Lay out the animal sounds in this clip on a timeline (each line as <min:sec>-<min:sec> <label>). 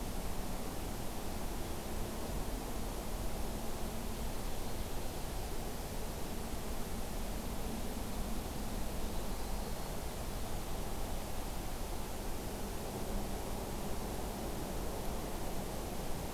0:08.7-0:10.0 Yellow-rumped Warbler (Setophaga coronata)